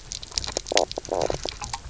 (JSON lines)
{"label": "biophony, knock croak", "recorder": "SoundTrap 300"}